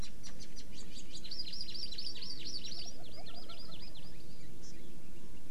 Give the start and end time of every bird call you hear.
[1.22, 4.12] Hawaii Amakihi (Chlorodrepanis virens)
[4.62, 4.72] Hawaii Amakihi (Chlorodrepanis virens)

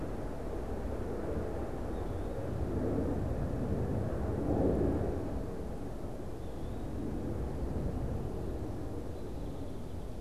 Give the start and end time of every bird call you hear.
[1.79, 2.39] Eastern Wood-Pewee (Contopus virens)
[6.29, 6.99] Eastern Wood-Pewee (Contopus virens)
[8.99, 10.19] Song Sparrow (Melospiza melodia)

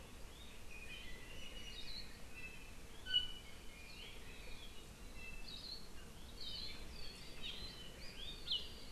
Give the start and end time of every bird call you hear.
[0.76, 2.76] Iiwi (Drepanis coccinea)
[3.06, 3.46] Iiwi (Drepanis coccinea)
[4.96, 5.66] Iiwi (Drepanis coccinea)
[5.46, 5.86] Hawaii Akepa (Loxops coccineus)
[6.36, 6.86] Hawaii Akepa (Loxops coccineus)
[7.36, 7.56] Iiwi (Drepanis coccinea)

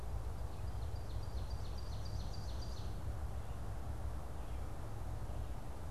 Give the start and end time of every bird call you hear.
[0.31, 3.21] Ovenbird (Seiurus aurocapilla)

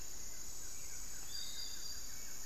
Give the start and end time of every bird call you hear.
[0.00, 2.45] Buff-throated Woodcreeper (Xiphorhynchus guttatus)
[0.00, 2.45] Hauxwell's Thrush (Turdus hauxwelli)
[0.00, 2.45] Piratic Flycatcher (Legatus leucophaius)

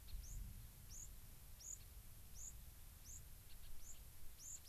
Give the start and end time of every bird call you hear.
[0.00, 0.20] Gray-crowned Rosy-Finch (Leucosticte tephrocotis)
[0.10, 4.68] White-crowned Sparrow (Zonotrichia leucophrys)
[1.70, 1.90] Gray-crowned Rosy-Finch (Leucosticte tephrocotis)
[3.50, 4.68] Gray-crowned Rosy-Finch (Leucosticte tephrocotis)

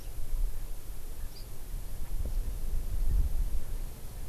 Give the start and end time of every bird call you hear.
[0.00, 0.10] Hawaii Amakihi (Chlorodrepanis virens)
[1.30, 1.50] Hawaii Amakihi (Chlorodrepanis virens)

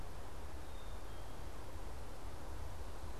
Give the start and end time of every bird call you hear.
[0.00, 3.19] Black-capped Chickadee (Poecile atricapillus)

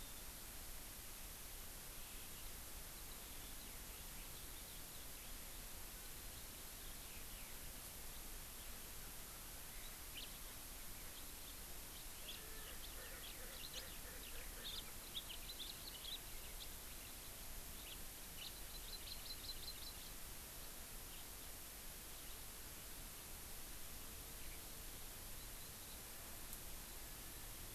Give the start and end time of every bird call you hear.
[2.00, 7.50] Eurasian Skylark (Alauda arvensis)
[10.10, 10.29] House Finch (Haemorhous mexicanus)
[11.89, 17.50] Eurasian Skylark (Alauda arvensis)
[12.29, 12.39] House Finch (Haemorhous mexicanus)
[12.79, 12.99] House Finch (Haemorhous mexicanus)
[14.60, 14.79] House Finch (Haemorhous mexicanus)
[17.80, 18.00] House Finch (Haemorhous mexicanus)
[18.39, 18.50] House Finch (Haemorhous mexicanus)
[18.70, 20.09] Hawaii Amakihi (Chlorodrepanis virens)

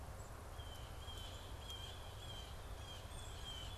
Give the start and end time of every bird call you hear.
[0.00, 3.78] Black-capped Chickadee (Poecile atricapillus)
[0.35, 3.78] Blue Jay (Cyanocitta cristata)

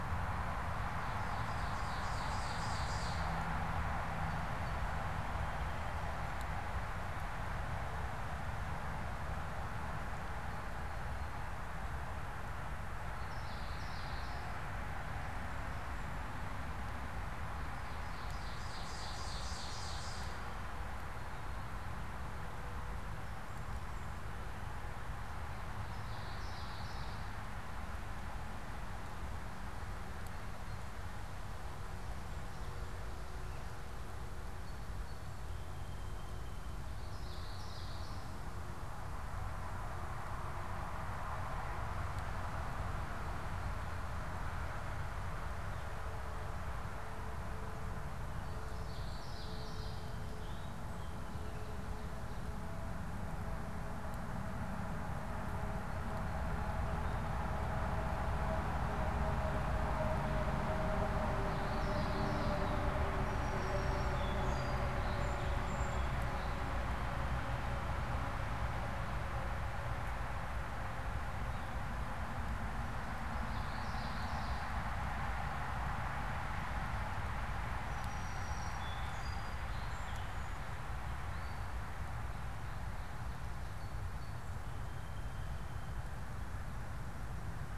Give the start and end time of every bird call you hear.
[0.50, 3.30] Ovenbird (Seiurus aurocapilla)
[13.20, 14.60] Common Yellowthroat (Geothlypis trichas)
[17.70, 20.60] Ovenbird (Seiurus aurocapilla)
[25.80, 27.30] Common Yellowthroat (Geothlypis trichas)
[34.50, 36.90] Song Sparrow (Melospiza melodia)
[37.00, 38.50] Common Yellowthroat (Geothlypis trichas)
[48.10, 50.30] Song Sparrow (Melospiza melodia)
[48.70, 50.10] Common Yellowthroat (Geothlypis trichas)
[61.30, 62.90] Common Yellowthroat (Geothlypis trichas)
[63.10, 66.30] Song Sparrow (Melospiza melodia)
[73.20, 74.80] Common Yellowthroat (Geothlypis trichas)
[77.80, 80.90] Song Sparrow (Melospiza melodia)
[83.60, 86.20] Song Sparrow (Melospiza melodia)

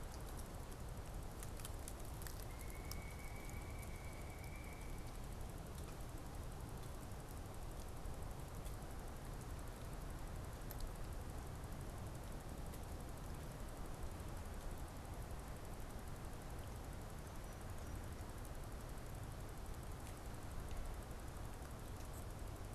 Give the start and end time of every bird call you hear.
[2.35, 5.45] Pileated Woodpecker (Dryocopus pileatus)

